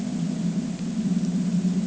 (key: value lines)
label: ambient
recorder: HydroMoth